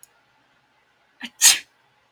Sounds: Sneeze